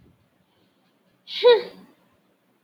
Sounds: Sigh